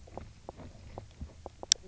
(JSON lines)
{"label": "biophony, knock croak", "recorder": "SoundTrap 300"}